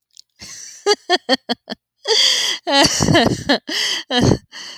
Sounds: Laughter